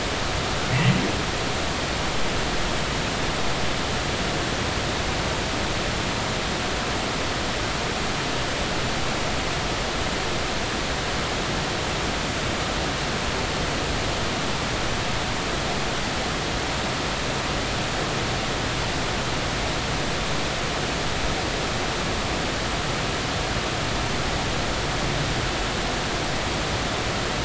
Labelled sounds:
0.7	0.9	humpback whale, 1.9 to 2.2 kHz

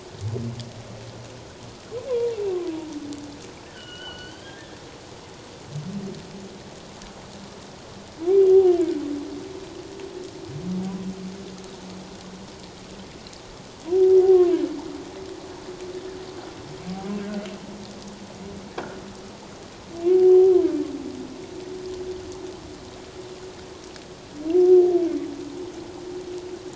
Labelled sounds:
2.1	2.3	humpback whale, 0.91 to 1.1 kHz
3.6	4.6	humpback whale, 1.4 to 4.8 kHz
18.7	19.0	croaking sound likely from a nearby submerged object, 1.4 to 1.8 kHz
20.1	20.5	humpback whale, 0.78 to 0.81 kHz

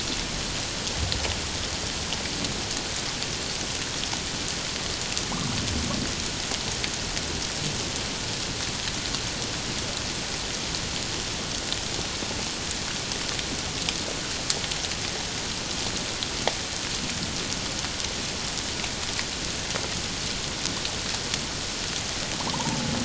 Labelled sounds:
22.4	22.8	humpback whale, 0.78 to 1.2 kHz

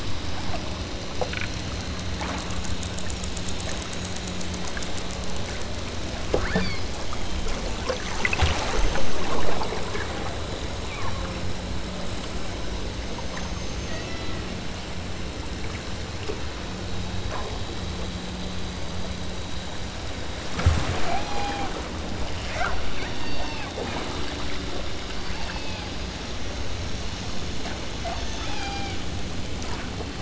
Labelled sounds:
0.4	0.7	killer whale, southern Alaska resident, 0.34 to 1.0 kHz
6.5	7.0	killer whale, southern Alaska resident, 1.8 to 6.5 kHz
10.8	11.3	killer whale, southern Alaska resident, 0.69 to 2.6 kHz
13.9	14.4	killer whale, southern Alaska resident, 1.7 to 3.0 kHz
21.2	21.8	killer whale, southern Alaska resident, 0.51 to 3.0 kHz
23.0	23.7	killer whale, southern Alaska resident, 1.9 to 5.9 kHz
25.2	25.9	killer whale, southern Alaska resident, 1.9 to 3.3 kHz
28.0	29.0	killer whale, southern Alaska resident, 0.34 to 3.0 kHz

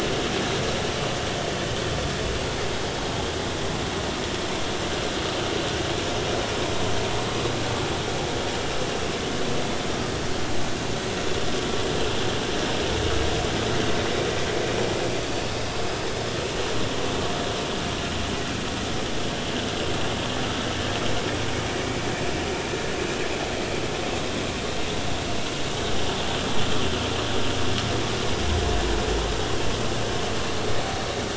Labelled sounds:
21.8	22.0	vessel noise, 2.2 to 2.4 kHz

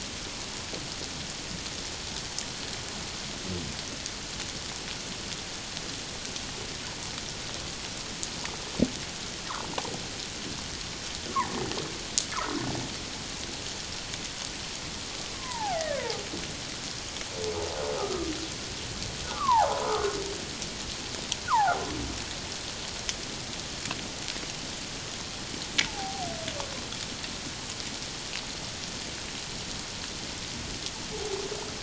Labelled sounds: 9.4	9.7	humpback whale, 0.81 to 1.5 kHz
15.3	16.2	humpback whale, 0.78 to 2.3 kHz
18.0	18.3	humpback whale, 1.1 to 1.3 kHz
19.2	20.1	humpback whale, 0.78 to 1.5 kHz
21.5	21.8	humpback whale, 0.78 to 1.6 kHz
25.9	26.3	humpback whale, 0.78 to 0.94 kHz

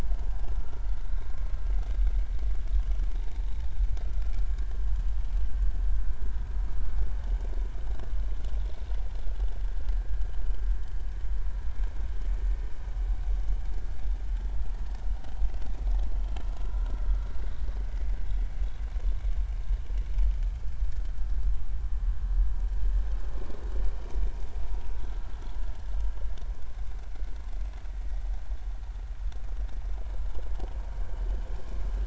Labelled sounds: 0.5	1.3	vessel noise, 1.3 to 3.9 kHz
4.1	4.3	vessel noise, 1.3 to 1.4 kHz
16.6	16.9	vessel noise, 1.3 to 1.5 kHz
27.9	28.2	vessel noise, 1.8 to 2.0 kHz

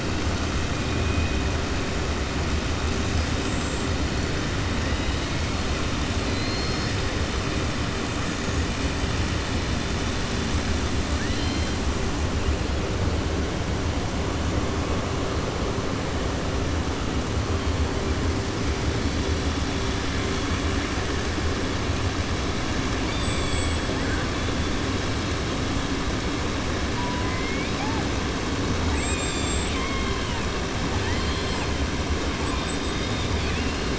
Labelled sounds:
6.2	6.9	killer whale, 3.6 to 5.4 kHz
11.1	11.7	killer whale, 1.5 to 5.2 kHz
23.0	23.8	killer whale, 2.7 to 5.4 kHz
28.8	30.4	killer whale, 1.4 to 7.9 kHz
30.9	31.7	killer whale, southern resident, 0.85 to 5.2 kHz

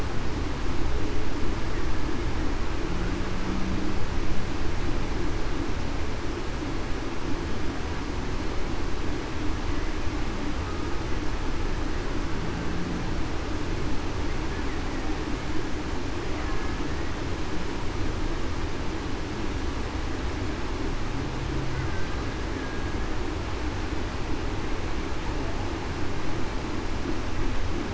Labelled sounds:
22.6	22.9	killer whale, Bigg's (transient), 1.6 to 1.7 kHz

